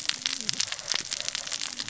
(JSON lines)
{"label": "biophony, cascading saw", "recorder": "SoundTrap 600 or HydroMoth"}